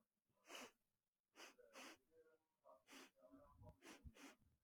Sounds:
Sniff